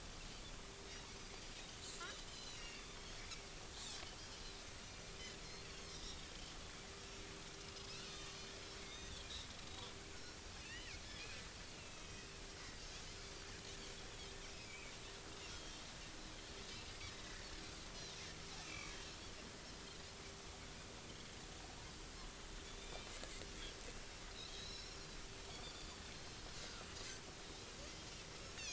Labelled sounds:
2.0	2.8	Pacific white-sided dolphin, 2.6 to 7.4 kHz
4.8	5.0	Pacific white-sided dolphin, 4.2 to 4.4 kHz
5.6	6.5	Pacific white-sided dolphin, 3.0 to 6.6 kHz
8.1	8.5	Pacific white-sided dolphin, 1.1 to 6.2 kHz
8.9	9.1	Pacific white-sided dolphin, 3.5 to 3.7 kHz
10.1	10.9	Pacific white-sided dolphin, 1.4 to 3.1 kHz
11.8	12.3	Pacific white-sided dolphin, 2.5 to 5.9 kHz
14.6	15.9	Pacific white-sided dolphin, 2.2 to 3.4 kHz
17.1	17.5	Pacific white-sided dolphin, 1.6 to 2.1 kHz
18.6	19.0	Pacific white-sided dolphin, 2.1 to 2.7 kHz
22.8	23.1	Pacific white-sided dolphin, 2.3 to 3.7 kHz
24.5	26.0	Pacific white-sided dolphin, 3.4 to 7.2 kHz

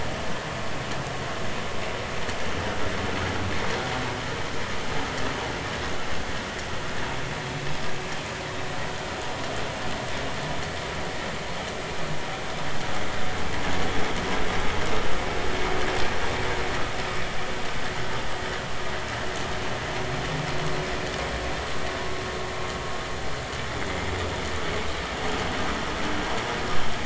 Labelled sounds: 8.5	8.8	vessel noise, 3.6 to 3.8 kHz

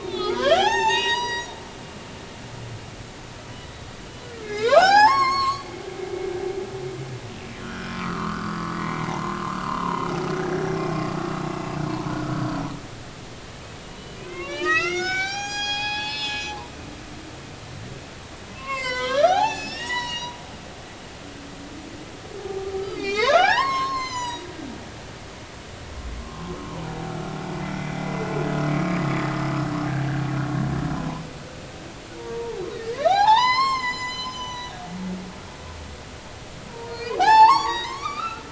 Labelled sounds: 0.0	1.5	humpback whale, 0.80 to 7.9 kHz
3.6	3.9	humpback whale, 3.8 to 4.0 kHz
4.4	5.7	humpback whale, 0.80 to 7.8 kHz
7.6	9.1	humpback whale, 0.93 to 5.0 kHz
9.6	10.0	humpback whale, 0.93 to 2.9 kHz
11.5	11.8	humpback whale, 2.6 to 2.8 kHz
13.8	17.5	humpback whale, 0.80 to 7.5 kHz
18.5	20.4	humpback whale, 0.80 to 8.0 kHz
22.8	24.5	humpback whale, 0.80 to 7.7 kHz
27.1	27.6	humpback whale, 0.99 to 1.4 kHz
28.7	29.0	humpback whale, 1.2 to 2.4 kHz
32.2	34.7	humpback whale, 0.80 to 8.0 kHz
36.7	38.5	humpback whale, 0.80 to 8.0 kHz

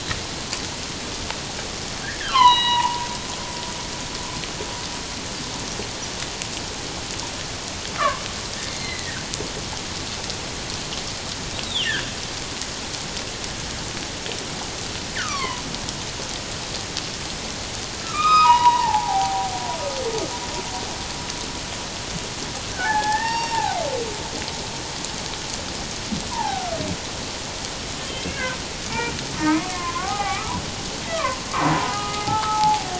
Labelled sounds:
2.0	3.1	humpback whale, 0.78 to 6.0 kHz
8.0	9.3	humpback whale, 0.97 to 4.3 kHz
11.7	11.9	humpback whale, 2.7 to 3.9 kHz
15.2	15.6	humpback whale, 0.94 to 3.6 kHz
18.0	19.5	humpback whale, 0.78 to 5.1 kHz
22.7	23.8	humpback whale, 0.78 to 5.6 kHz
26.3	26.8	humpback whale, 0.78 to 1.8 kHz
28.1	28.6	humpback whale, 1.4 to 2.3 kHz
29.4	31.4	humpback whale, 0.78 to 2.5 kHz
31.7	32.9	humpback whale, 0.78 to 1.5 kHz

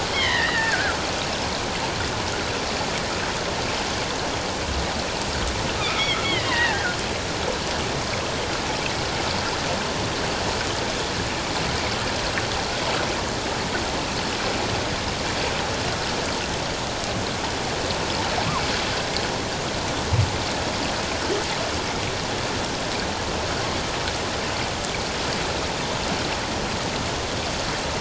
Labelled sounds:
0.1	1.0	killer whale, offshore, 1.3 to 3.4 kHz
5.8	7.0	killer whale, offshore, 1.4 to 3.5 kHz

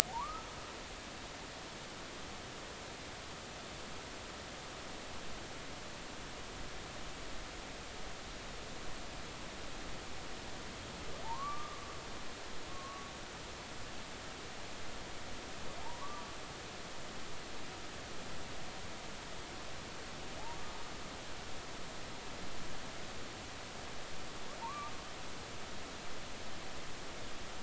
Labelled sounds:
0.1	0.5	humpback whale, 0.80 to 1.4 kHz
11.2	11.8	humpback whale, 0.80 to 1.2 kHz
12.7	13.1	humpback whale, 1.0 to 1.2 kHz
15.8	16.3	humpback whale, 0.80 to 1.2 kHz
24.6	24.9	humpback whale, 0.86 to 1.2 kHz

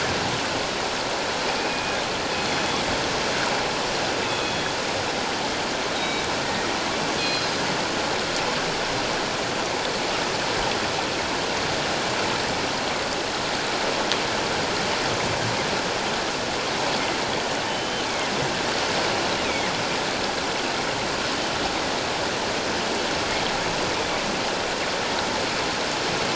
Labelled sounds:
1.6	2.0	killer whale, northern resident, G clan, 2.4 to 2.5 kHz
4.2	4.8	killer whale, northern resident, G clan, 2.5 to 3.5 kHz
6.0	7.5	killer whale, northern resident, G clan, 2.2 to 4.2 kHz
17.7	18.1	killer whale, northern resident, G clan, 2.9 to 3.2 kHz
19.4	19.7	killer whale, northern resident, G clan, 2.0 to 2.6 kHz

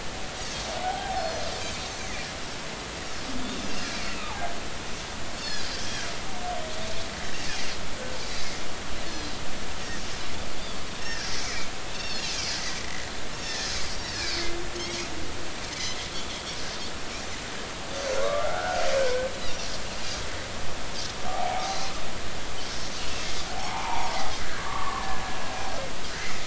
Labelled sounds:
0.8	1.2	humpback whale, 0.80 to 0.86 kHz
1.1	1.5	Pacific white-sided dolphin, 4.1 to 5.3 kHz
3.8	4.4	humpback whale, 1.1 to 2.5 kHz
5.3	5.8	Pacific white-sided dolphin, 4.2 to 5.4 kHz
9.1	9.3	Pacific white-sided dolphin, 3.9 to 4.4 kHz
11.0	11.3	Pacific white-sided dolphin, 1.5 to 1.9 kHz
11.9	12.3	Pacific white-sided dolphin, 3.0 to 5.5 kHz
12.8	13.1	Pacific white-sided dolphin, 1.9 to 2.1 kHz
13.4	14.2	Pacific white-sided dolphin, 1.7 to 5.7 kHz
15.7	16.3	Pacific white-sided dolphin, 1.9 to 5.2 kHz
18.2	18.8	humpback whale, 1.0 to 1.6 kHz
21.3	21.6	humpback whale, 0.80 to 0.93 kHz
21.6	21.9	Pacific white-sided dolphin, 3.9 to 6.0 kHz
23.6	25.2	humpback whale, 0.80 to 2.5 kHz

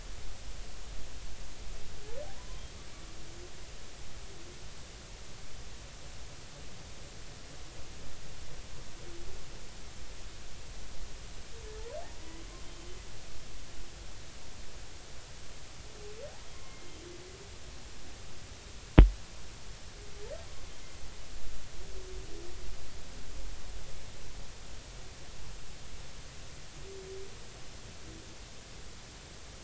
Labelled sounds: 2.3	2.6	humpback whale, 0.93 to 1.1 kHz
12.6	12.9	humpback whale, 3.1 to 3.2 kHz
16.6	16.9	humpback whale, 2.0 to 2.2 kHz
17.5	17.8	humpback whale, 0.96 to 1.1 kHz

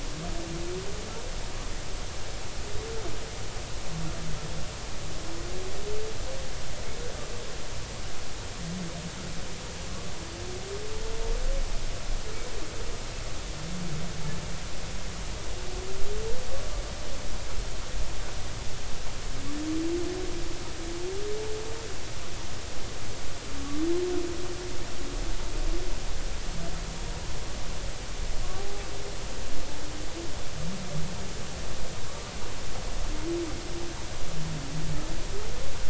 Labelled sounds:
23.6	23.8	humpback whale, 1.1 to 1.2 kHz
28.6	28.8	humpback whale, 0.80 to 0.86 kHz

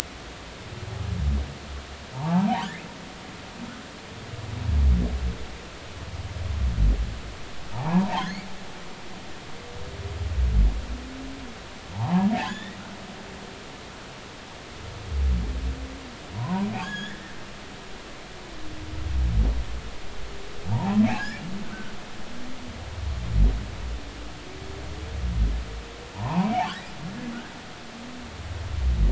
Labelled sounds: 2.1	2.8	humpback whale, 0.80 to 3.6 kHz
7.7	8.5	humpback whale, 0.80 to 2.4 kHz
11.9	12.8	humpback whale, 0.80 to 3.7 kHz
16.3	17.3	humpback whale, 0.80 to 6.9 kHz
20.7	21.0	humpback whale, 0.80 to 1.1 kHz
26.1	26.5	humpback whale, 0.80 to 1.1 kHz

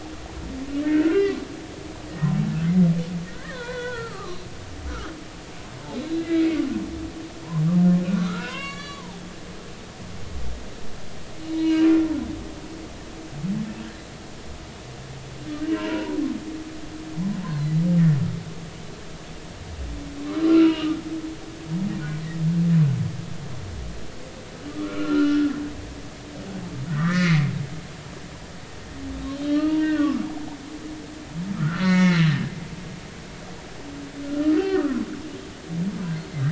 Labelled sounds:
0.8	1.4	humpback whale, 0.99 to 2.8 kHz
2.1	2.3	humpback whale, 1.8 to 2.0 kHz
3.3	4.4	humpback whale, 0.90 to 3.5 kHz
4.9	5.1	humpback whale, 1.1 to 1.5 kHz
6.1	6.4	humpback whale, 1.6 to 1.7 kHz
8.0	9.2	humpback whale, 0.80 to 7.5 kHz
11.4	12.1	humpback whale, 0.83 to 4.2 kHz
15.7	16.2	humpback whale, 0.90 to 2.9 kHz
17.5	17.8	humpback whale, 3.9 to 4.4 kHz
20.5	20.9	humpback whale, 1.2 to 3.1 kHz
24.7	25.5	humpback whale, 1.1 to 3.0 kHz
26.9	27.5	humpback whale, 1.1 to 2.4 kHz
29.3	30.2	humpback whale, 0.99 to 4.4 kHz
31.5	32.4	humpback whale, 1.2 to 5.8 kHz
34.6	35.1	humpback whale, 0.99 to 1.6 kHz

